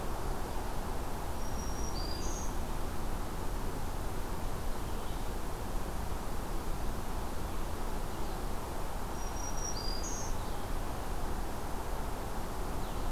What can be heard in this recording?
Black-throated Green Warbler, Red-eyed Vireo